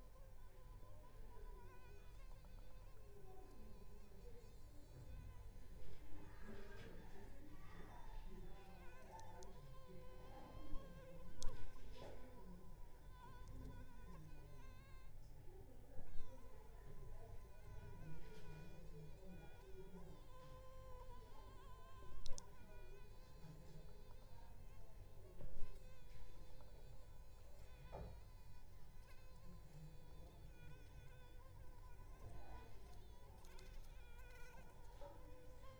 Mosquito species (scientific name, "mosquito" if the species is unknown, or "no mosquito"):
Anopheles arabiensis